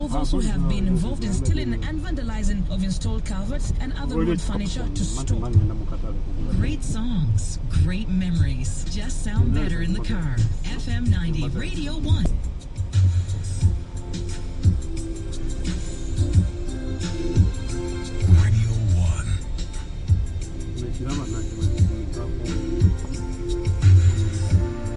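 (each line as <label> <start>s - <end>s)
A radio is playing. 0.0s - 24.9s
A man is speaking indistinctly in the background. 0.0s - 2.0s
A man is speaking indistinctly in the background. 4.0s - 6.6s
A man is speaking indistinctly in the background. 9.3s - 12.3s
A man is speaking indistinctly in the background. 20.6s - 23.1s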